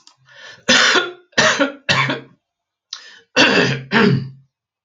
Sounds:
Cough